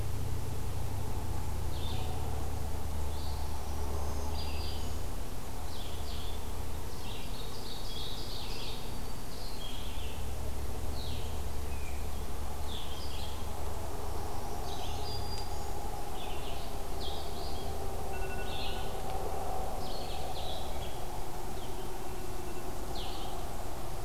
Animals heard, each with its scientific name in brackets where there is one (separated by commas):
Black-throated Green Warbler (Setophaga virens), Blue-headed Vireo (Vireo solitarius), Ovenbird (Seiurus aurocapilla)